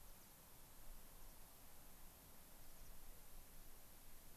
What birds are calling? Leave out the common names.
Anthus rubescens